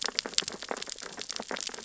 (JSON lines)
{"label": "biophony, sea urchins (Echinidae)", "recorder": "SoundTrap 600 or HydroMoth"}